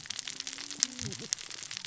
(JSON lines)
{"label": "biophony, cascading saw", "recorder": "SoundTrap 600 or HydroMoth"}